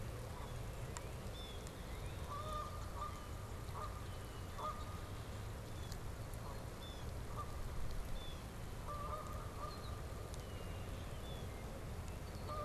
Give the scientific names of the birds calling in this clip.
Branta canadensis, Cyanocitta cristata, Agelaius phoeniceus